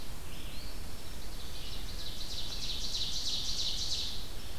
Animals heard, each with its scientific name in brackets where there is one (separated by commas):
Eastern Phoebe (Sayornis phoebe), Black-throated Green Warbler (Setophaga virens), Red-eyed Vireo (Vireo olivaceus), Ovenbird (Seiurus aurocapilla)